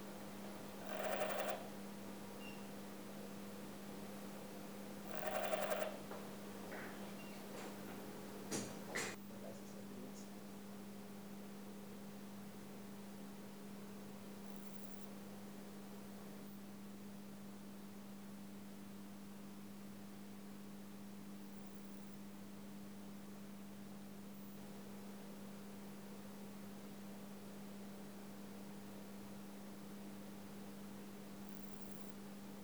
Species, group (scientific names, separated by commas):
Parnassiana fusca, Orthoptera